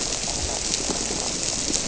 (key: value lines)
label: biophony
recorder: SoundTrap 300